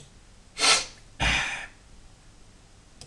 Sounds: Sniff